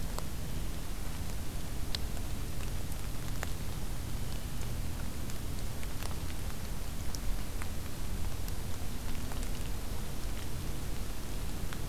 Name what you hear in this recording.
Blue Jay